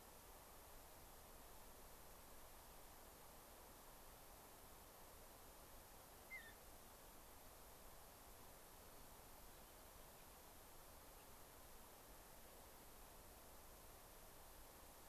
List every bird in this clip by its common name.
Mountain Bluebird